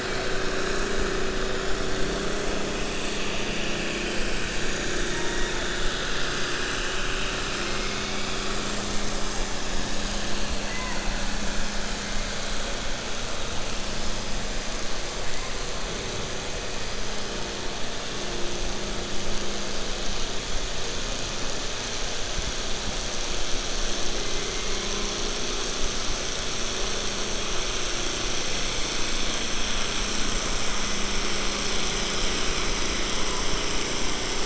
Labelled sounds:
7.5	8.2	killer whale, 1.2 to 2.8 kHz

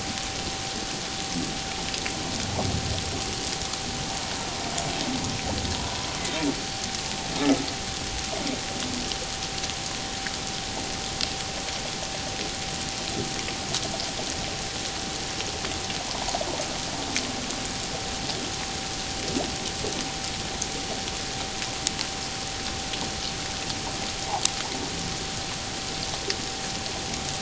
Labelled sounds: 5.8	6.1	humpback whale, 0.91 to 1.1 kHz

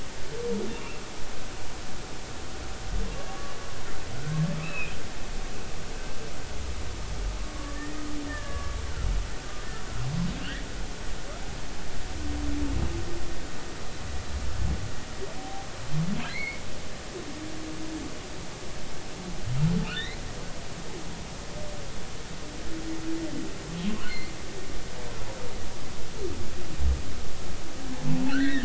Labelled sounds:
0.1	1.0	humpback whale, 1.2 to 2.8 kHz
3.3	3.6	humpback whale, 1.1 to 1.2 kHz
4.6	4.9	humpback whale, 2.2 to 4.0 kHz
7.6	8.7	humpback whale, 1.1 to 1.9 kHz
15.4	15.7	humpback whale, 0.80 to 0.83 kHz
16.3	16.6	humpback whale, 2.0 to 2.4 kHz
19.9	20.2	humpback whale, 1.7 to 4.2 kHz
28.3	28.6	humpback whale, 1.3 to 3.9 kHz

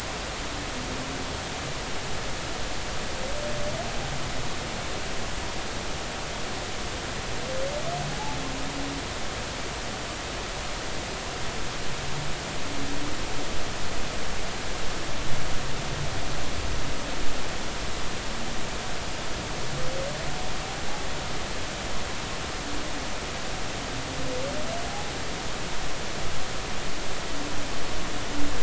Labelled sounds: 24.9	25.1	humpback whale, 0.80 to 0.86 kHz

